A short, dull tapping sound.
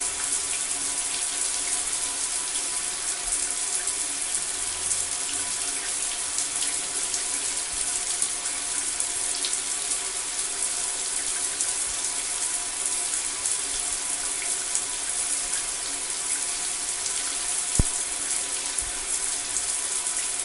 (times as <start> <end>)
17.8 18.0